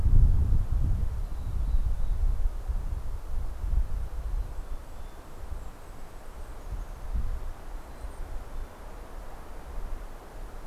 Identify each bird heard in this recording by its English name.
Mountain Chickadee, Golden-crowned Kinglet